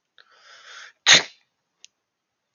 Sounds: Sneeze